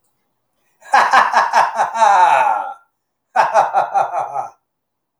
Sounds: Laughter